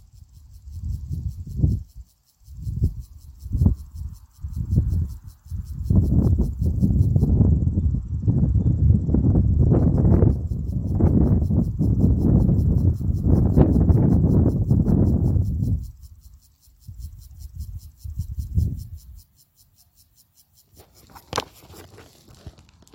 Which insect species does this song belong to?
Gomphocerus sibiricus